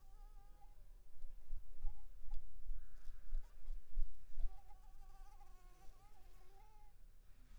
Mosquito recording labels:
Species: Anopheles arabiensis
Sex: female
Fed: unfed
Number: one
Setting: cup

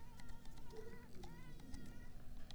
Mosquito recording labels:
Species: Mansonia uniformis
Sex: female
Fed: unfed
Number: one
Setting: cup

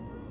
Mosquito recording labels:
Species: Anopheles albimanus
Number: one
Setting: insect culture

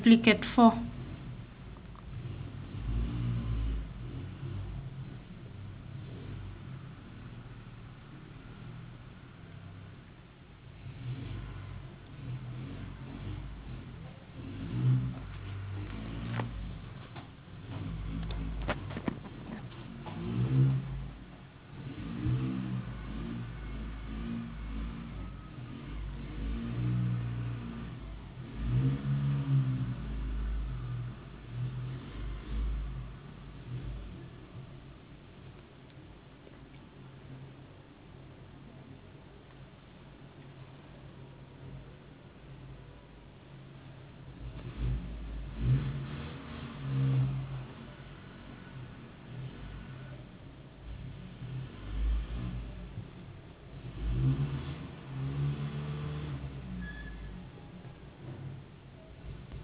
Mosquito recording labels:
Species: no mosquito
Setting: insect culture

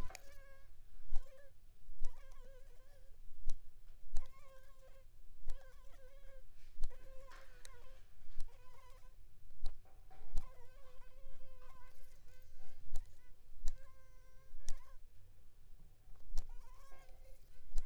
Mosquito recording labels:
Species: Anopheles squamosus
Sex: female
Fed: unfed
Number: one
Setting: cup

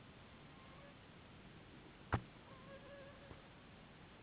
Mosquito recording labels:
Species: Anopheles gambiae s.s.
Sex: female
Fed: unfed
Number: one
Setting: insect culture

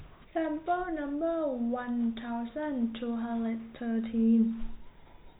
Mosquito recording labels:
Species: no mosquito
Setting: cup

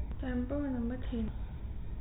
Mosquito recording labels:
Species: no mosquito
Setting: cup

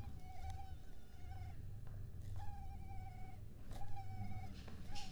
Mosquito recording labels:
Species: mosquito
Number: one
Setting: cup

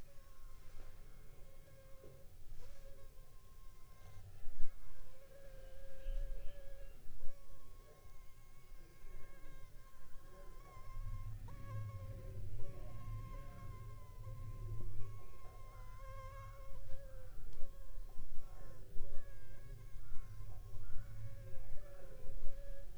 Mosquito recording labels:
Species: Anopheles funestus s.s.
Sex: female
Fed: unfed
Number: one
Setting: cup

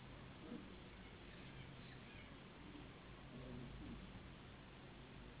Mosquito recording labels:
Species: Anopheles gambiae s.s.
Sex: female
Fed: unfed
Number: one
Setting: insect culture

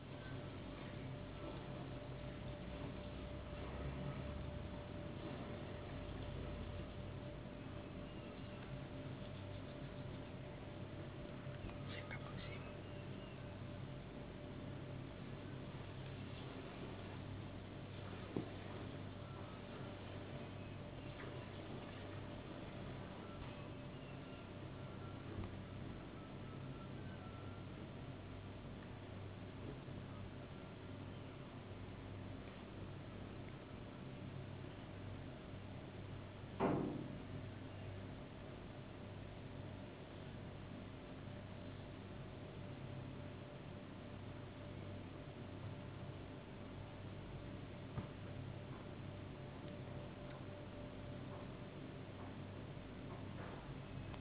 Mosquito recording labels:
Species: no mosquito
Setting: insect culture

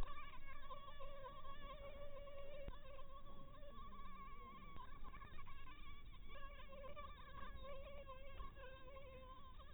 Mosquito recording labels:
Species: Anopheles maculatus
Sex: female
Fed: blood-fed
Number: one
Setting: cup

